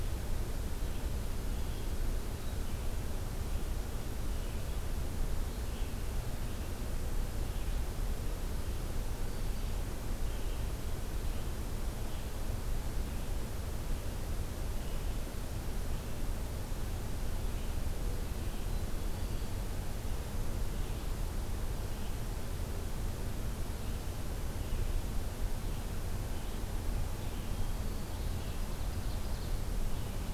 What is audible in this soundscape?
Red-eyed Vireo, Ovenbird